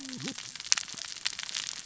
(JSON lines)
{"label": "biophony, cascading saw", "recorder": "SoundTrap 600 or HydroMoth"}